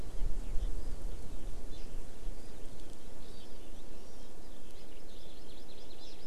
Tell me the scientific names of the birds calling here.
Alauda arvensis, Chlorodrepanis virens